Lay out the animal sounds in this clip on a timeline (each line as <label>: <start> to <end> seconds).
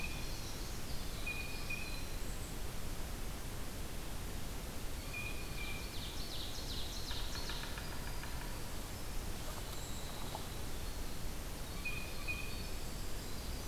Winter Wren (Troglodytes hiemalis): 0.0 to 2.4 seconds
Blue Jay (Cyanocitta cristata): 1.1 to 2.1 seconds
Blue Jay (Cyanocitta cristata): 5.0 to 6.0 seconds
Ovenbird (Seiurus aurocapilla): 5.4 to 7.9 seconds
Winter Wren (Troglodytes hiemalis): 7.5 to 13.7 seconds
Blue Jay (Cyanocitta cristata): 11.7 to 12.7 seconds